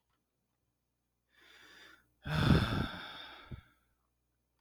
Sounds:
Sigh